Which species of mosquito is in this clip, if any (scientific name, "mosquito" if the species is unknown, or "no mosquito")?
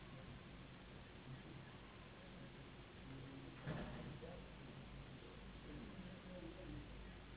Anopheles gambiae s.s.